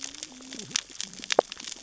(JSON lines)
{"label": "biophony, cascading saw", "recorder": "SoundTrap 600 or HydroMoth"}